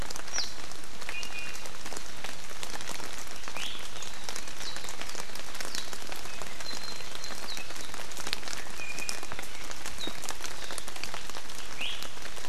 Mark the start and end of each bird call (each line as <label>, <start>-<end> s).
Warbling White-eye (Zosterops japonicus), 0.3-0.5 s
Iiwi (Drepanis coccinea), 1.1-1.6 s
Iiwi (Drepanis coccinea), 3.5-3.8 s
Warbling White-eye (Zosterops japonicus), 4.6-4.7 s
Warbling White-eye (Zosterops japonicus), 5.7-5.8 s
Iiwi (Drepanis coccinea), 6.6-7.1 s
Iiwi (Drepanis coccinea), 8.8-9.3 s
Iiwi (Drepanis coccinea), 11.8-12.0 s